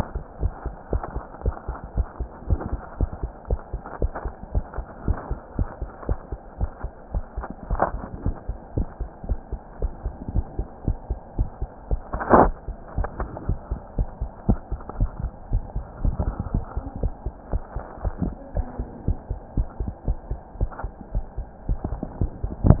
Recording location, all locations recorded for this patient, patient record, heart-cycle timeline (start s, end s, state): mitral valve (MV)
aortic valve (AV)+pulmonary valve (PV)+tricuspid valve (TV)+mitral valve (MV)
#Age: Child
#Sex: Female
#Height: 115.0 cm
#Weight: 18.9 kg
#Pregnancy status: False
#Murmur: Absent
#Murmur locations: nan
#Most audible location: nan
#Systolic murmur timing: nan
#Systolic murmur shape: nan
#Systolic murmur grading: nan
#Systolic murmur pitch: nan
#Systolic murmur quality: nan
#Diastolic murmur timing: nan
#Diastolic murmur shape: nan
#Diastolic murmur grading: nan
#Diastolic murmur pitch: nan
#Diastolic murmur quality: nan
#Outcome: Normal
#Campaign: 2015 screening campaign
0.00	0.39	unannotated
0.39	0.52	S1
0.52	0.64	systole
0.64	0.76	S2
0.76	0.92	diastole
0.92	1.02	S1
1.02	1.14	systole
1.14	1.24	S2
1.24	1.44	diastole
1.44	1.54	S1
1.54	1.66	systole
1.66	1.76	S2
1.76	1.94	diastole
1.94	2.08	S1
2.08	2.18	systole
2.18	2.28	S2
2.28	2.46	diastole
2.46	2.60	S1
2.60	2.70	systole
2.70	2.80	S2
2.80	2.98	diastole
2.98	3.10	S1
3.10	3.20	systole
3.20	3.30	S2
3.30	3.48	diastole
3.48	3.60	S1
3.60	3.72	systole
3.72	3.84	S2
3.84	4.00	diastole
4.00	4.14	S1
4.14	4.22	systole
4.22	4.32	S2
4.32	4.50	diastole
4.50	4.64	S1
4.64	4.74	systole
4.74	4.86	S2
4.86	5.06	diastole
5.06	5.18	S1
5.18	5.29	systole
5.29	5.38	S2
5.38	5.56	diastole
5.56	5.68	S1
5.68	5.80	systole
5.80	5.90	S2
5.90	6.08	diastole
6.08	6.18	S1
6.18	6.29	systole
6.29	6.40	S2
6.40	6.58	diastole
6.58	6.70	S1
6.70	6.82	systole
6.82	6.92	S2
6.92	7.12	diastole
7.12	7.24	S1
7.24	7.36	systole
7.36	7.50	S2
7.50	7.68	diastole
7.68	7.80	S1
7.80	7.92	systole
7.92	8.02	S2
8.02	8.22	diastole
8.22	8.36	S1
8.36	8.46	systole
8.46	8.56	S2
8.56	8.75	diastole
8.75	8.88	S1
8.88	8.98	systole
8.98	9.10	S2
9.10	9.26	diastole
9.26	9.38	S1
9.38	9.50	systole
9.50	9.60	S2
9.60	9.80	diastole
9.80	9.92	S1
9.92	10.02	systole
10.02	10.14	S2
10.14	10.32	diastole
10.32	10.46	S1
10.46	10.56	systole
10.56	10.68	S2
10.68	10.85	diastole
10.85	10.96	S1
10.96	11.08	systole
11.08	11.18	S2
11.18	11.36	diastole
11.36	11.48	S1
11.48	11.60	systole
11.60	11.70	S2
11.70	11.90	diastole
11.90	12.00	S1
12.00	12.12	systole
12.12	12.20	S2
12.20	12.41	diastole
12.41	12.52	S1
12.52	12.66	systole
12.66	12.76	S2
12.76	12.94	diastole
12.94	13.08	S1
13.08	13.18	systole
13.18	13.28	S2
13.28	13.46	diastole
13.46	13.60	S1
13.60	13.70	systole
13.70	13.82	S2
13.82	13.98	diastole
13.98	14.12	S1
14.12	14.20	systole
14.20	14.30	S2
14.30	14.46	diastole
14.46	14.60	S1
14.60	14.70	systole
14.70	14.80	S2
14.80	14.96	diastole
14.96	15.09	S1
15.09	15.20	systole
15.20	15.32	S2
15.32	15.48	diastole
15.48	15.62	S1
15.62	15.74	systole
15.74	15.86	S2
15.86	22.80	unannotated